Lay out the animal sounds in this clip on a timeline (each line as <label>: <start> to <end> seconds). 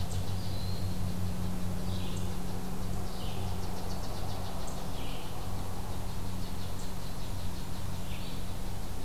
Red-eyed Vireo (Vireo olivaceus): 0.0 to 9.0 seconds
unknown mammal: 0.0 to 9.0 seconds
Broad-winged Hawk (Buteo platypterus): 0.2 to 1.0 seconds